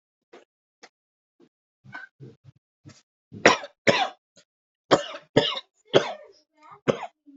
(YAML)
expert_labels:
- quality: ok
  cough_type: dry
  dyspnea: false
  wheezing: false
  stridor: false
  choking: false
  congestion: false
  nothing: true
  diagnosis: COVID-19
  severity: mild